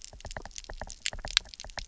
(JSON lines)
{"label": "biophony, knock", "recorder": "SoundTrap 300"}